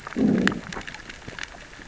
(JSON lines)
{"label": "biophony, growl", "recorder": "SoundTrap 600 or HydroMoth"}